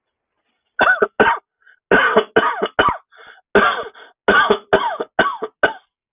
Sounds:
Cough